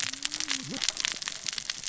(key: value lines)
label: biophony, cascading saw
recorder: SoundTrap 600 or HydroMoth